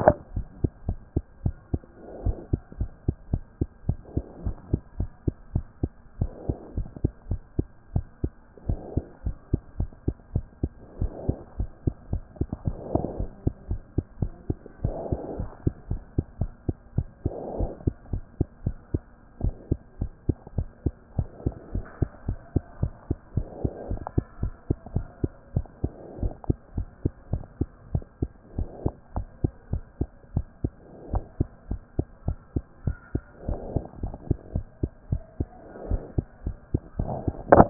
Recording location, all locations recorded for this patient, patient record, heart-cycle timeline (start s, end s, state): pulmonary valve (PV)
aortic valve (AV)+pulmonary valve (PV)
#Age: Child
#Sex: Female
#Height: 88.0 cm
#Weight: 12.7 kg
#Pregnancy status: False
#Murmur: Absent
#Murmur locations: nan
#Most audible location: nan
#Systolic murmur timing: nan
#Systolic murmur shape: nan
#Systolic murmur grading: nan
#Systolic murmur pitch: nan
#Systolic murmur quality: nan
#Diastolic murmur timing: nan
#Diastolic murmur shape: nan
#Diastolic murmur grading: nan
#Diastolic murmur pitch: nan
#Diastolic murmur quality: nan
#Outcome: Abnormal
#Campaign: 2014 screening campaign
0.00	0.34	unannotated
0.34	0.46	S1
0.46	0.62	systole
0.62	0.70	S2
0.70	0.86	diastole
0.86	0.98	S1
0.98	1.14	systole
1.14	1.24	S2
1.24	1.44	diastole
1.44	1.56	S1
1.56	1.72	systole
1.72	1.82	S2
1.82	2.24	diastole
2.24	2.36	S1
2.36	2.52	systole
2.52	2.60	S2
2.60	2.80	diastole
2.80	2.90	S1
2.90	3.06	systole
3.06	3.16	S2
3.16	3.32	diastole
3.32	3.42	S1
3.42	3.60	systole
3.60	3.68	S2
3.68	3.86	diastole
3.86	3.98	S1
3.98	4.14	systole
4.14	4.24	S2
4.24	4.44	diastole
4.44	4.56	S1
4.56	4.72	systole
4.72	4.80	S2
4.80	4.98	diastole
4.98	5.10	S1
5.10	5.26	systole
5.26	5.34	S2
5.34	5.54	diastole
5.54	5.66	S1
5.66	5.82	systole
5.82	5.90	S2
5.90	6.20	diastole
6.20	6.32	S1
6.32	6.48	systole
6.48	6.56	S2
6.56	6.76	diastole
6.76	6.88	S1
6.88	7.02	systole
7.02	7.12	S2
7.12	7.28	diastole
7.28	7.40	S1
7.40	7.56	systole
7.56	7.66	S2
7.66	7.94	diastole
7.94	8.06	S1
8.06	8.22	systole
8.22	8.32	S2
8.32	8.68	diastole
8.68	8.80	S1
8.80	8.94	systole
8.94	9.04	S2
9.04	9.26	diastole
9.26	9.36	S1
9.36	9.52	systole
9.52	9.60	S2
9.60	9.78	diastole
9.78	9.90	S1
9.90	10.06	systole
10.06	10.16	S2
10.16	10.34	diastole
10.34	10.46	S1
10.46	10.62	systole
10.62	10.72	S2
10.72	11.00	diastole
11.00	11.12	S1
11.12	11.26	systole
11.26	11.36	S2
11.36	11.58	diastole
11.58	11.70	S1
11.70	11.86	systole
11.86	11.94	S2
11.94	12.12	diastole
12.12	12.22	S1
12.22	12.38	systole
12.38	12.48	S2
12.48	12.66	diastole
12.66	12.78	S1
12.78	12.92	systole
12.92	13.02	S2
13.02	13.18	diastole
13.18	13.30	S1
13.30	13.44	systole
13.44	13.54	S2
13.54	13.70	diastole
13.70	13.80	S1
13.80	13.96	systole
13.96	14.04	S2
14.04	14.20	diastole
14.20	14.32	S1
14.32	14.48	systole
14.48	14.58	S2
14.58	14.82	diastole
14.82	14.96	S1
14.96	15.10	systole
15.10	15.20	S2
15.20	15.38	diastole
15.38	15.50	S1
15.50	15.64	systole
15.64	15.74	S2
15.74	15.90	diastole
15.90	16.02	S1
16.02	16.16	systole
16.16	16.26	S2
16.26	16.40	diastole
16.40	16.52	S1
16.52	16.66	systole
16.66	16.76	S2
16.76	16.96	diastole
16.96	17.08	S1
17.08	17.24	systole
17.24	17.34	S2
17.34	17.58	diastole
17.58	17.70	S1
17.70	17.84	systole
17.84	17.94	S2
17.94	18.12	diastole
18.12	18.24	S1
18.24	18.38	systole
18.38	18.46	S2
18.46	18.64	diastole
18.64	18.76	S1
18.76	18.92	systole
18.92	19.02	S2
19.02	19.42	diastole
19.42	19.54	S1
19.54	19.70	systole
19.70	19.78	S2
19.78	20.00	diastole
20.00	20.12	S1
20.12	20.28	systole
20.28	20.36	S2
20.36	20.56	diastole
20.56	20.68	S1
20.68	20.84	systole
20.84	20.94	S2
20.94	21.16	diastole
21.16	21.28	S1
21.28	21.44	systole
21.44	21.54	S2
21.54	21.74	diastole
21.74	21.84	S1
21.84	22.00	systole
22.00	22.10	S2
22.10	22.26	diastole
22.26	22.38	S1
22.38	22.54	systole
22.54	22.64	S2
22.64	22.80	diastole
22.80	22.92	S1
22.92	23.08	systole
23.08	23.18	S2
23.18	23.36	diastole
23.36	23.48	S1
23.48	23.62	systole
23.62	23.72	S2
23.72	23.90	diastole
23.90	24.02	S1
24.02	24.16	systole
24.16	24.24	S2
24.24	24.42	diastole
24.42	24.54	S1
24.54	24.68	systole
24.68	24.78	S2
24.78	24.94	diastole
24.94	25.06	S1
25.06	25.22	systole
25.22	25.32	S2
25.32	25.54	diastole
25.54	25.66	S1
25.66	25.82	systole
25.82	25.92	S2
25.92	26.20	diastole
26.20	26.32	S1
26.32	26.48	systole
26.48	26.56	S2
26.56	26.76	diastole
26.76	26.88	S1
26.88	27.04	systole
27.04	27.12	S2
27.12	27.32	diastole
27.32	27.42	S1
27.42	27.60	systole
27.60	27.68	S2
27.68	27.92	diastole
27.92	28.04	S1
28.04	28.20	systole
28.20	28.30	S2
28.30	28.56	diastole
28.56	28.68	S1
28.68	28.84	systole
28.84	28.94	S2
28.94	29.16	diastole
29.16	29.28	S1
29.28	29.42	systole
29.42	29.52	S2
29.52	29.72	diastole
29.72	29.82	S1
29.82	30.00	systole
30.00	30.08	S2
30.08	30.34	diastole
30.34	30.46	S1
30.46	30.62	systole
30.62	30.72	S2
30.72	31.12	diastole
31.12	31.24	S1
31.24	31.38	systole
31.38	31.48	S2
31.48	31.70	diastole
31.70	31.82	S1
31.82	31.98	systole
31.98	32.06	S2
32.06	32.26	diastole
32.26	32.38	S1
32.38	32.54	systole
32.54	32.64	S2
32.64	32.86	diastole
32.86	32.96	S1
32.96	33.14	systole
33.14	33.22	S2
33.22	33.48	diastole
33.48	33.60	S1
33.60	33.74	systole
33.74	33.84	S2
33.84	34.02	diastole
34.02	34.14	S1
34.14	34.28	systole
34.28	34.38	S2
34.38	34.54	diastole
34.54	34.66	S1
34.66	34.82	systole
34.82	34.90	S2
34.90	35.10	diastole
35.10	35.22	S1
35.22	35.38	systole
35.38	35.48	S2
35.48	35.88	diastole
35.88	36.02	S1
36.02	36.16	systole
36.16	36.26	S2
36.26	36.46	diastole
36.46	36.56	S1
36.56	36.72	systole
36.72	36.82	S2
36.82	36.98	diastole
36.98	37.12	S1
37.12	37.26	systole
37.26	37.34	S2
37.34	37.52	diastole
37.52	37.70	unannotated